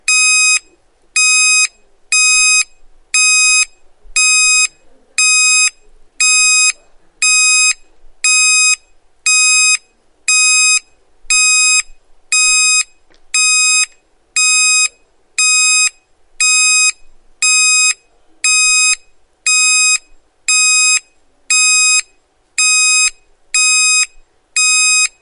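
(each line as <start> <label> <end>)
0.0 An alarm beeps continuously with alternating 500-millisecond beeps and pauses. 25.2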